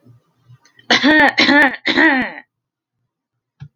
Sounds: Cough